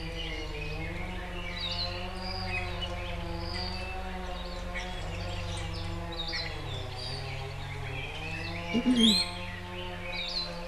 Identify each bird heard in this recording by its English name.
Red-billed Leiothrix, Hawaii Akepa, Apapane, Iiwi